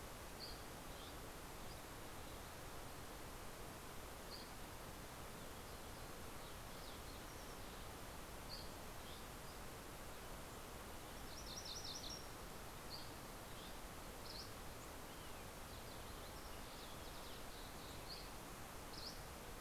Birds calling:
Fox Sparrow (Passerella iliaca)
Dusky Flycatcher (Empidonax oberholseri)
MacGillivray's Warbler (Geothlypis tolmiei)

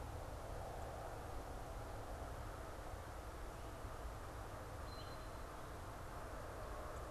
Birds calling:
Eastern Towhee (Pipilo erythrophthalmus)

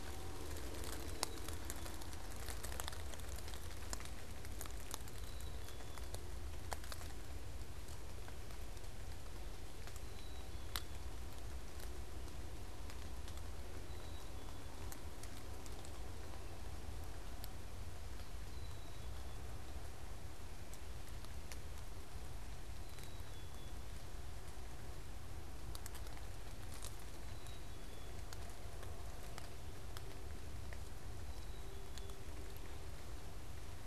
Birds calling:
Black-capped Chickadee (Poecile atricapillus)

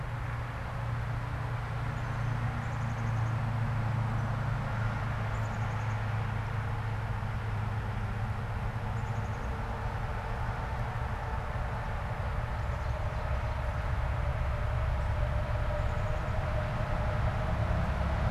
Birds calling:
Common Yellowthroat (Geothlypis trichas)
Ovenbird (Seiurus aurocapilla)
Black-capped Chickadee (Poecile atricapillus)

